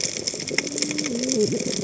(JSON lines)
{"label": "biophony, cascading saw", "recorder": "HydroMoth"}